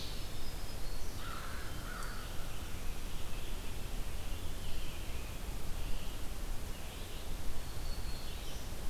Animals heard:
Black-throated Green Warbler (Setophaga virens), Red-eyed Vireo (Vireo olivaceus), Hermit Thrush (Catharus guttatus), American Crow (Corvus brachyrhynchos)

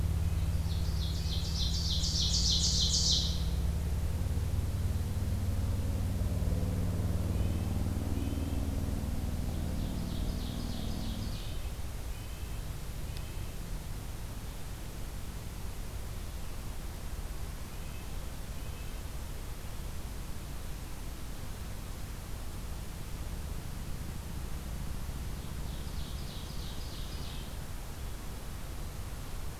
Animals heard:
Red-breasted Nuthatch (Sitta canadensis), Ovenbird (Seiurus aurocapilla)

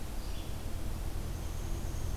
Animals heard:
Red-eyed Vireo (Vireo olivaceus), Downy Woodpecker (Dryobates pubescens)

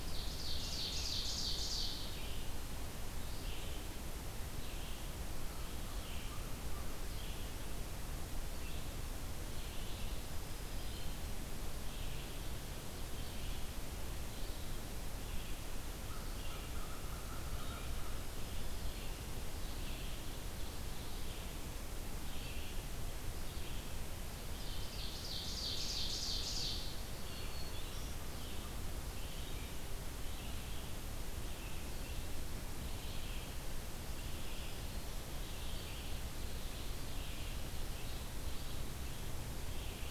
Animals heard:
Red-eyed Vireo (Vireo olivaceus), Ovenbird (Seiurus aurocapilla), American Crow (Corvus brachyrhynchos), Black-throated Green Warbler (Setophaga virens)

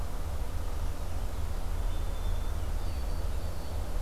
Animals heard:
Purple Finch (Haemorhous purpureus), White-throated Sparrow (Zonotrichia albicollis)

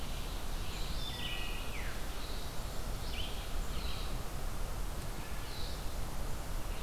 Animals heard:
Veery (Catharus fuscescens), Wood Thrush (Hylocichla mustelina), Red-eyed Vireo (Vireo olivaceus)

